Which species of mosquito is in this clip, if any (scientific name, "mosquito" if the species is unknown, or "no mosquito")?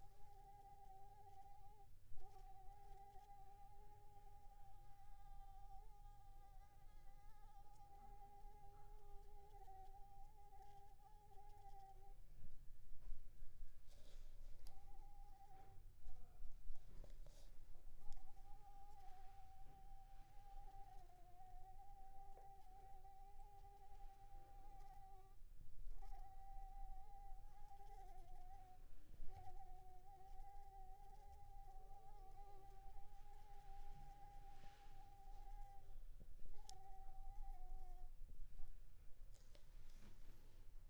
Anopheles arabiensis